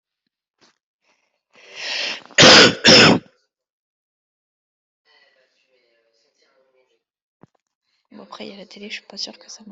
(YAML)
expert_labels:
- quality: ok
  cough_type: dry
  dyspnea: false
  wheezing: false
  stridor: false
  choking: false
  congestion: false
  nothing: true
  diagnosis: lower respiratory tract infection
  severity: mild
age: 30
gender: female
respiratory_condition: false
fever_muscle_pain: false
status: symptomatic